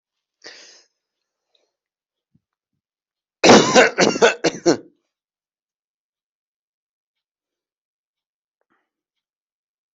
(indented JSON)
{
  "expert_labels": [
    {
      "quality": "good",
      "cough_type": "unknown",
      "dyspnea": false,
      "wheezing": false,
      "stridor": false,
      "choking": false,
      "congestion": false,
      "nothing": true,
      "diagnosis": "healthy cough",
      "severity": "pseudocough/healthy cough"
    }
  ],
  "age": 37,
  "gender": "male",
  "respiratory_condition": true,
  "fever_muscle_pain": true,
  "status": "healthy"
}